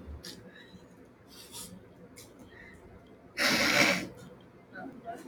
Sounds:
Sniff